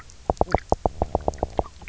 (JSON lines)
{"label": "biophony, knock croak", "recorder": "SoundTrap 300"}